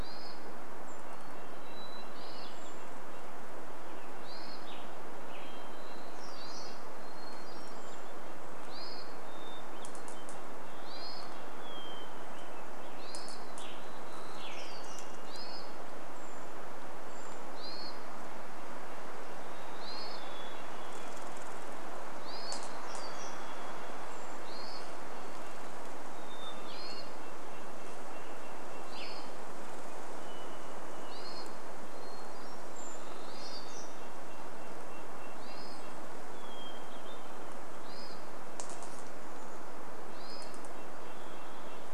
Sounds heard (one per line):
Red-breasted Nuthatch song
bird wingbeats
Chestnut-backed Chickadee call
Brown Creeper call
Western Tanager song
Hermit Thrush call
Varied Thrush song
warbler song
tree creak
Hermit Thrush song